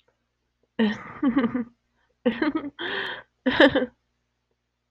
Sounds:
Sniff